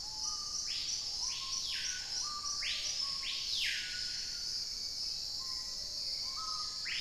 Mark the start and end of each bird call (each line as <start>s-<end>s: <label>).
0.0s-7.0s: Screaming Piha (Lipaugus vociferans)
0.2s-2.5s: unidentified bird
4.5s-7.0s: Hauxwell's Thrush (Turdus hauxwelli)